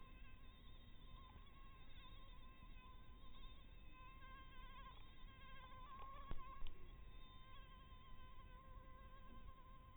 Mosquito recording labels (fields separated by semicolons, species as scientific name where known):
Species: Anopheles dirus; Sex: female; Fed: blood-fed; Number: one; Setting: cup